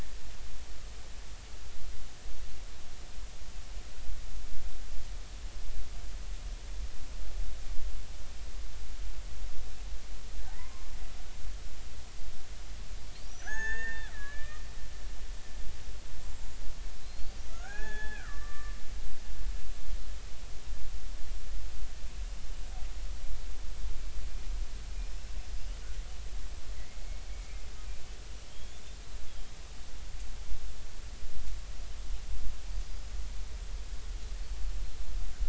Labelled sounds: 10.4	10.9	killer whale, Bigg's (transient), 0.80 to 2.1 kHz
13.2	14.6	killer whale, Bigg's (transient), 0.80 to 6.7 kHz
17.0	18.8	killer whale, Bigg's (transient), 0.80 to 6.6 kHz
26.8	27.6	killer whale, Bigg's (transient), 1.9 to 2.3 kHz
29.3	29.5	killer whale, Bigg's (transient), 3.1 to 3.5 kHz

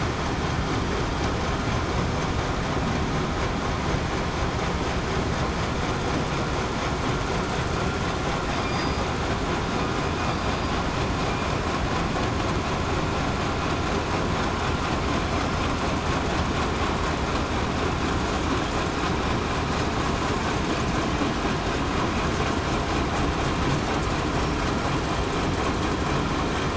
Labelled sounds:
8.7	9.0	killer whale, southern resident, 4.8 to 4.9 kHz

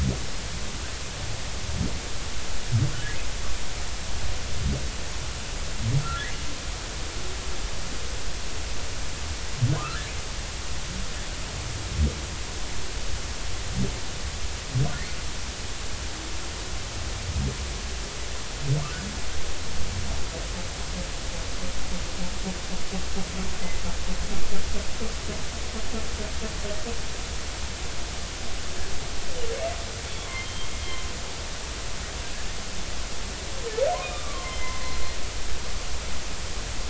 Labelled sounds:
9.8	10.1	humpback whale, 1.2 to 1.9 kHz
30.3	30.7	humpback whale, 3.1 to 3.2 kHz
34.0	35.0	humpback whale, 0.96 to 3.8 kHz

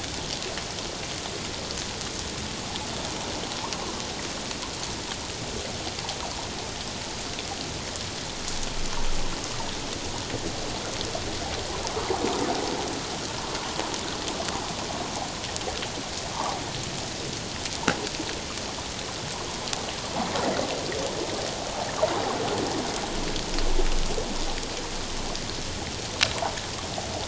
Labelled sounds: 16.3	16.6	water noise, 0.78 to 1.3 kHz

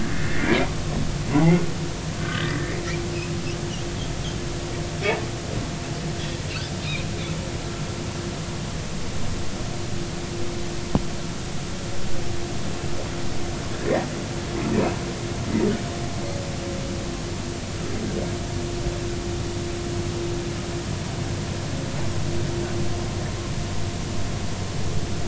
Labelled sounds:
0.1	0.6	humpback whale, 1.6 to 2.4 kHz
2.2	2.8	humpback whale, 1.1 to 2.0 kHz

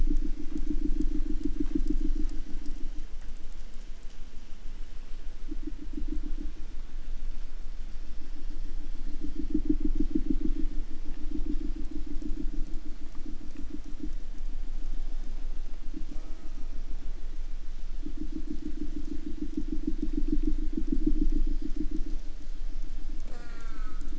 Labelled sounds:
16.1	16.7	killer whale, southern resident, J pod, call S04, 0.29 to 4.5 kHz
23.2	24.1	killer whale, southern resident, J pod, call S04, 0 to 8.0 kHz

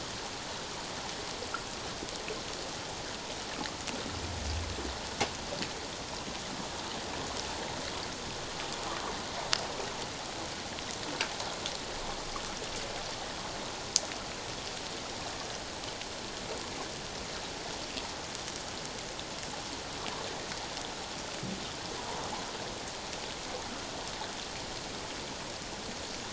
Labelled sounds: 22.0	22.3	water noise, 0.88 to 1.1 kHz

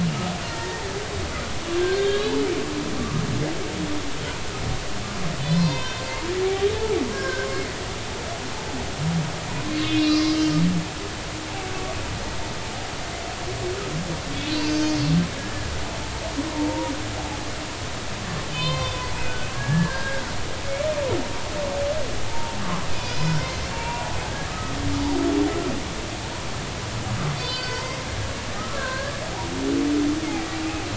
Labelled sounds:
0.4	0.9	humpback whale, 0.86 to 1.9 kHz
1.7	2.4	humpback whale, 1.5 to 4.5 kHz
5.4	6.0	humpback whale, 0.90 to 4.7 kHz
7.1	7.5	humpback whale, 0.96 to 1.7 kHz
9.7	10.5	humpback whale, 1.0 to 5.4 kHz
14.5	15.0	humpback whale, 2.6 to 6.2 kHz
15.4	15.7	humpback whale, 1.6 to 1.8 kHz
16.5	16.9	humpback whale, 0.86 to 1.0 kHz
18.5	18.9	humpback whale, 0.96 to 4.2 kHz
19.5	20.5	humpback whale, 1.4 to 1.8 kHz
22.2	22.6	humpback whale, 0.80 to 0.99 kHz
22.9	24.1	humpback whale, 0.90 to 5.2 kHz
24.5	24.8	humpback whale, 1.2 to 1.3 kHz
27.4	28.0	humpback whale, 0.90 to 5.2 kHz
28.5	29.2	humpback whale, 0.99 to 1.8 kHz

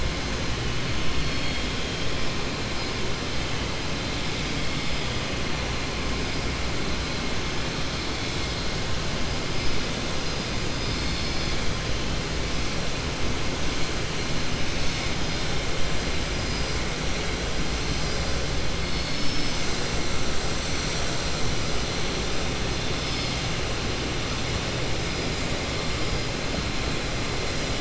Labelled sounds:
1.1	1.7	vessel noise, 2.4 to 6.1 kHz

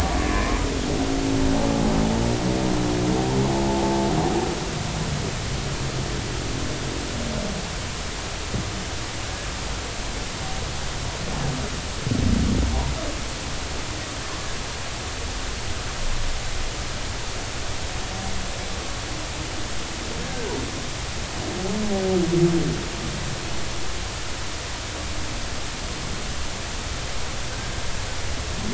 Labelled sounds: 20.2	20.5	humpback whale, 1.4 to 1.7 kHz
27.5	27.8	humpback whale, 1.4 to 1.7 kHz

